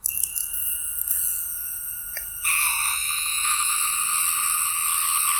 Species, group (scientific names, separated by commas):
Magicicada septendecim, Cicadidae